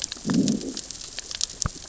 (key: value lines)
label: biophony, growl
recorder: SoundTrap 600 or HydroMoth